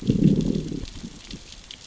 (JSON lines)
{"label": "biophony, growl", "recorder": "SoundTrap 600 or HydroMoth"}